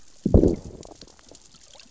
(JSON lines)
{"label": "biophony, growl", "recorder": "SoundTrap 600 or HydroMoth"}